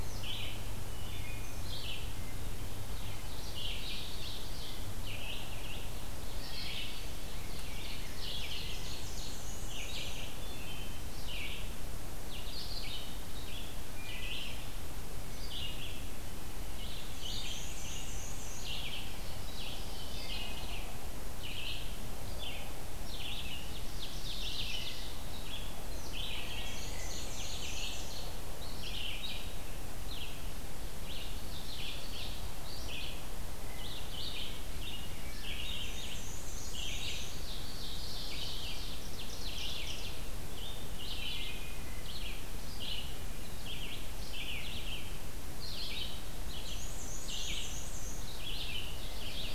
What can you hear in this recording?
Red-eyed Vireo, Wood Thrush, Ovenbird, Black-and-white Warbler